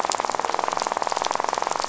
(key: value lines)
label: biophony, rattle
recorder: SoundTrap 500